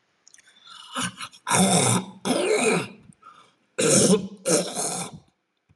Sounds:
Throat clearing